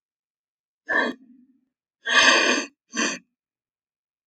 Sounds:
Sniff